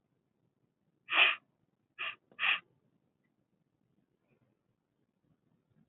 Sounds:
Sniff